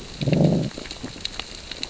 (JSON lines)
{"label": "biophony, growl", "recorder": "SoundTrap 600 or HydroMoth"}